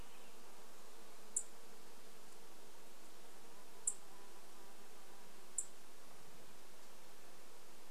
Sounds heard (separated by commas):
Purple Finch song, Dark-eyed Junco call, insect buzz